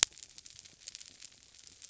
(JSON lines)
{"label": "biophony", "recorder": "SoundTrap 300"}